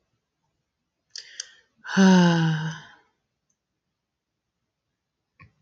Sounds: Sigh